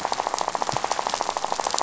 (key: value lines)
label: biophony, rattle
recorder: SoundTrap 500